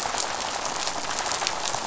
{"label": "biophony, rattle", "recorder": "SoundTrap 500"}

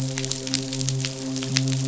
{"label": "biophony, midshipman", "recorder": "SoundTrap 500"}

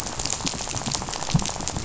{"label": "biophony, rattle", "recorder": "SoundTrap 500"}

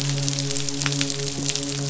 {"label": "biophony, midshipman", "recorder": "SoundTrap 500"}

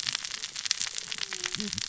{"label": "biophony, cascading saw", "recorder": "SoundTrap 600 or HydroMoth"}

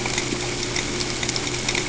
{"label": "ambient", "recorder": "HydroMoth"}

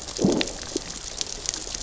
{"label": "biophony, growl", "recorder": "SoundTrap 600 or HydroMoth"}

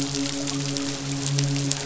{"label": "biophony, midshipman", "recorder": "SoundTrap 500"}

